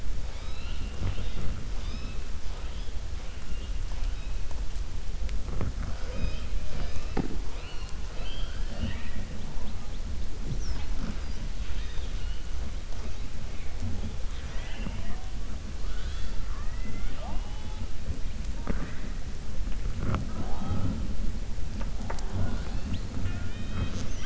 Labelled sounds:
8.1	9.2	killer whale, 0.16 to 4.9 kHz

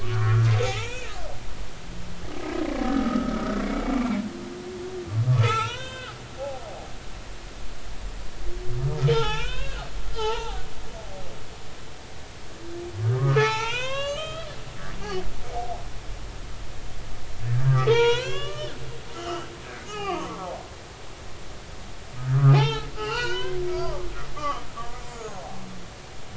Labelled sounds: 0.0	1.1	humpback whale, 0.80 to 6.8 kHz
2.8	3.6	humpback whale, 1.2 to 1.6 kHz
5.3	6.2	humpback whale, 0.80 to 6.0 kHz
9.1	9.9	humpback whale, 0.80 to 7.0 kHz
10.1	10.6	humpback whale, 0.80 to 3.3 kHz
13.0	15.3	humpback whale, 0.80 to 7.6 kHz
17.5	18.8	humpback whale, 0.83 to 7.1 kHz
19.1	20.5	humpback whale, 0.80 to 3.2 kHz
22.2	23.6	humpback whale, 0.80 to 5.7 kHz
24.4	25.4	humpback whale, 0.99 to 7.2 kHz

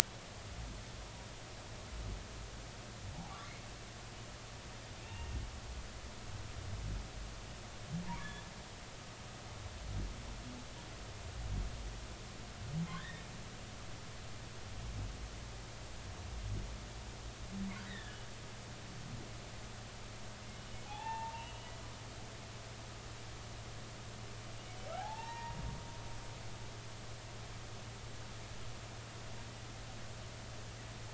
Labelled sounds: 3.1	3.4	humpback whale, 0.80 to 0.96 kHz
5.0	5.4	humpback whale, 2.6 to 2.9 kHz
8.2	8.4	humpback whale, 1.6 to 1.8 kHz
12.9	13.2	humpback whale, 1.4 to 3.9 kHz
17.9	18.2	humpback whale, 1.6 to 3.9 kHz
20.8	22.3	humpback whale, 0.80 to 3.0 kHz
25.0	25.6	humpback whale, 0.80 to 2.8 kHz

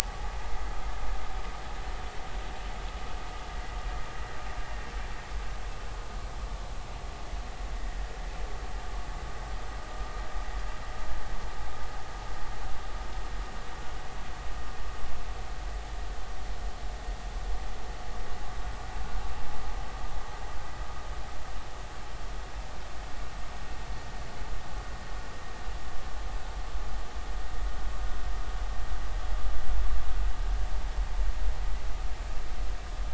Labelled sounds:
0.0	0.3	vessel noise, 0.80 to 0.96 kHz

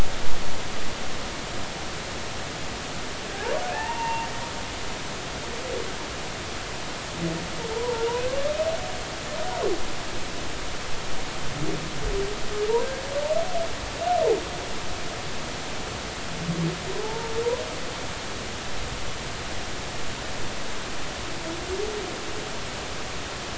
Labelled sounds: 3.3	4.3	humpback whale, 0.80 to 2.8 kHz
4.7	5.0	humpback whale, 1.6 to 1.9 kHz
7.7	8.1	humpback whale, 0.86 to 1.0 kHz
17.0	17.3	humpback whale, 0.83 to 0.96 kHz

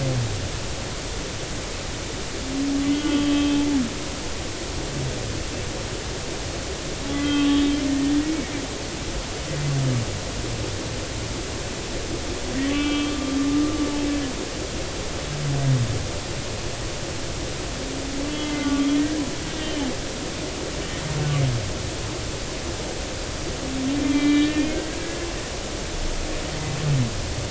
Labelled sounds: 2.8	3.6	humpback whale, 1.1 to 3.3 kHz
7.1	7.6	humpback whale, 1.1 to 3.8 kHz
8.2	8.5	humpback whale, 2.1 to 2.3 kHz
12.7	13.3	humpback whale, 1.1 to 3.3 kHz
18.3	18.9	humpback whale, 1.1 to 3.1 kHz
19.6	19.8	humpback whale, 1.8 to 2.0 kHz
24.0	25.3	humpback whale, 1.6 to 3.9 kHz

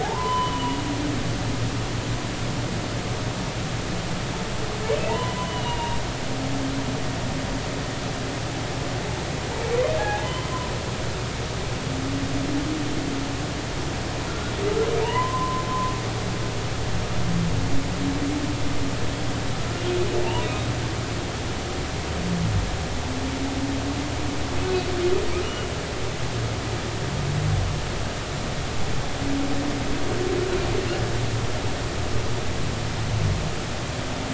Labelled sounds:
0.0	0.8	humpback whale, 0.80 to 3.1 kHz
5.1	6.0	humpback whale, 0.80 to 3.1 kHz
10.0	10.5	humpback whale, 0.80 to 2.1 kHz
15.0	15.6	humpback whale, 0.86 to 3.1 kHz
25.4	25.7	humpback whale, 2.8 to 3.0 kHz

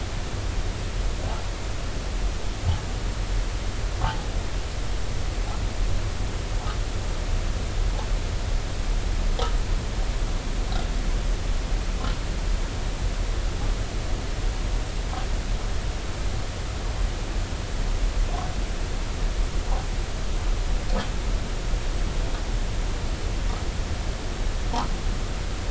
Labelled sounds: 4.0	4.3	humpback whale, 0.80 to 0.93 kHz

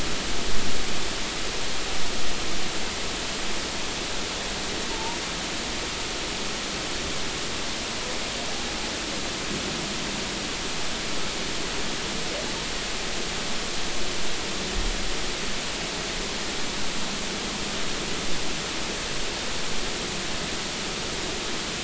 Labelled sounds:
4.9	5.2	humpback whale, 0.83 to 0.99 kHz

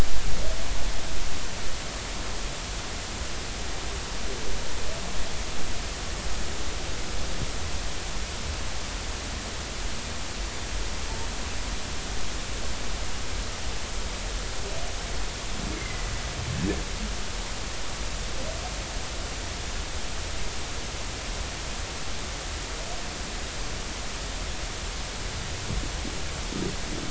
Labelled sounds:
15.7	16.1	humpback whale, 2.0 to 2.2 kHz

